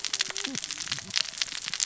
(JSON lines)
{"label": "biophony, cascading saw", "recorder": "SoundTrap 600 or HydroMoth"}